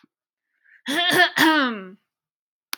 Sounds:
Throat clearing